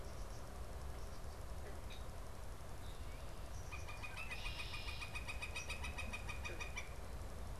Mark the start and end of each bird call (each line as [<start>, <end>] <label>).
[1.54, 3.84] Red-winged Blackbird (Agelaius phoeniceus)
[3.54, 6.94] Northern Flicker (Colaptes auratus)
[4.14, 5.24] Red-winged Blackbird (Agelaius phoeniceus)